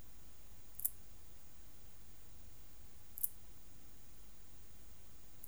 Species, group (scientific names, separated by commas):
Parasteropleurus perezii, Orthoptera